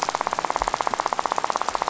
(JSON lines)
{"label": "biophony, rattle", "recorder": "SoundTrap 500"}